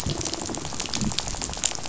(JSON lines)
{"label": "biophony, rattle", "recorder": "SoundTrap 500"}